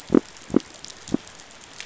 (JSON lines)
{"label": "biophony", "recorder": "SoundTrap 500"}